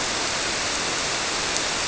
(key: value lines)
label: biophony
recorder: SoundTrap 300